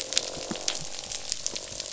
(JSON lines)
{"label": "biophony, croak", "recorder": "SoundTrap 500"}